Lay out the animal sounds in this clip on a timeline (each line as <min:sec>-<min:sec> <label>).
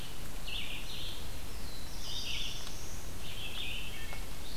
0:00.0-0:04.6 Red-eyed Vireo (Vireo olivaceus)
0:01.3-0:03.3 Black-throated Blue Warbler (Setophaga caerulescens)
0:03.8-0:04.4 Wood Thrush (Hylocichla mustelina)